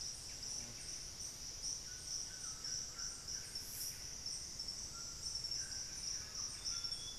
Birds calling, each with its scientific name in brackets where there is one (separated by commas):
Amazonian Grosbeak (Cyanoloxia rothschildii), Buff-breasted Wren (Cantorchilus leucotis), White-throated Toucan (Ramphastos tucanus), Solitary Black Cacique (Cacicus solitarius)